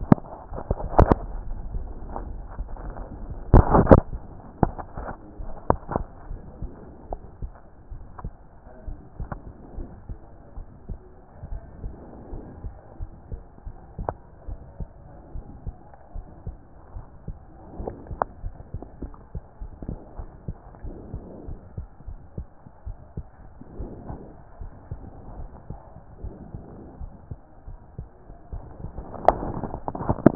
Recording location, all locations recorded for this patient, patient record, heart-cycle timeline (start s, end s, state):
aortic valve (AV)
aortic valve (AV)+pulmonary valve (PV)+tricuspid valve (TV)+mitral valve (MV)
#Age: Child
#Sex: Female
#Height: 124.0 cm
#Weight: 25.1 kg
#Pregnancy status: False
#Murmur: Absent
#Murmur locations: nan
#Most audible location: nan
#Systolic murmur timing: nan
#Systolic murmur shape: nan
#Systolic murmur grading: nan
#Systolic murmur pitch: nan
#Systolic murmur quality: nan
#Diastolic murmur timing: nan
#Diastolic murmur shape: nan
#Diastolic murmur grading: nan
#Diastolic murmur pitch: nan
#Diastolic murmur quality: nan
#Outcome: Abnormal
#Campaign: 2014 screening campaign
0.00	11.62	unannotated
11.62	11.82	systole
11.82	11.94	S2
11.94	12.32	diastole
12.32	12.44	S1
12.44	12.64	systole
12.64	12.74	S2
12.74	13.00	diastole
13.00	13.10	S1
13.10	13.30	systole
13.30	13.42	S2
13.42	13.66	diastole
13.66	13.76	S1
13.76	13.98	systole
13.98	14.12	S2
14.12	14.48	diastole
14.48	14.60	S1
14.60	14.78	systole
14.78	14.88	S2
14.88	15.34	diastole
15.34	15.46	S1
15.46	15.66	systole
15.66	15.76	S2
15.76	16.14	diastole
16.14	16.26	S1
16.26	16.46	systole
16.46	16.56	S2
16.56	16.94	diastole
16.94	17.06	S1
17.06	17.26	systole
17.26	17.36	S2
17.36	17.78	diastole
17.78	17.92	S1
17.92	18.10	systole
18.10	18.20	S2
18.20	18.44	diastole
18.44	18.54	S1
18.54	18.74	systole
18.74	18.82	S2
18.82	19.02	diastole
19.02	19.12	S1
19.12	19.34	systole
19.34	19.42	S2
19.42	19.60	diastole
19.60	19.72	S1
19.72	19.86	systole
19.86	19.98	S2
19.98	20.18	diastole
20.18	20.28	S1
20.28	20.46	systole
20.46	20.56	S2
20.56	20.84	diastole
20.84	20.96	S1
20.96	21.12	systole
21.12	21.22	S2
21.22	21.48	diastole
21.48	21.58	S1
21.58	21.76	systole
21.76	21.86	S2
21.86	22.08	diastole
22.08	22.18	S1
22.18	22.36	systole
22.36	22.46	S2
22.46	22.86	diastole
22.86	22.98	S1
22.98	23.16	systole
23.16	23.26	S2
23.26	23.78	diastole
23.78	23.90	S1
23.90	24.08	systole
24.08	24.20	S2
24.20	24.60	diastole
24.60	24.72	S1
24.72	24.90	systole
24.90	25.00	S2
25.00	25.36	diastole
25.36	25.48	S1
25.48	25.70	systole
25.70	25.78	S2
25.78	26.22	diastole
26.22	26.34	S1
26.34	26.54	systole
26.54	26.64	S2
26.64	27.00	diastole
27.00	27.12	S1
27.12	27.30	systole
27.30	27.38	S2
27.38	27.49	diastole
27.49	30.35	unannotated